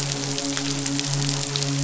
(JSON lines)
{"label": "biophony, midshipman", "recorder": "SoundTrap 500"}